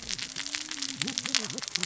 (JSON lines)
{"label": "biophony, cascading saw", "recorder": "SoundTrap 600 or HydroMoth"}